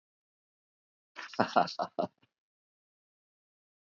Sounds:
Laughter